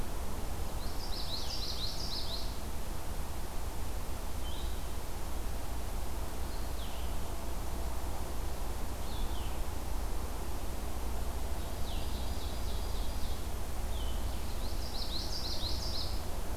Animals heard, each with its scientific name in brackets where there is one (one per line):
Ovenbird (Seiurus aurocapilla)
Red-eyed Vireo (Vireo olivaceus)
Common Yellowthroat (Geothlypis trichas)